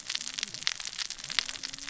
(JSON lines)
{"label": "biophony, cascading saw", "recorder": "SoundTrap 600 or HydroMoth"}